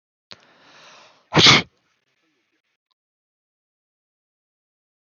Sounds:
Sneeze